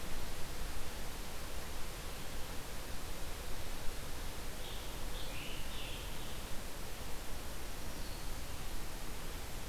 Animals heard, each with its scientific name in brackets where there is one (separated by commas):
Scarlet Tanager (Piranga olivacea)